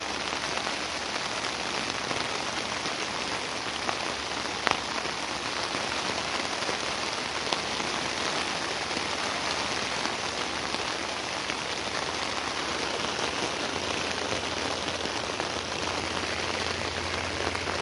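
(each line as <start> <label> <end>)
0.0 Rain pours steadily on a surface with a high-pitched sound. 17.8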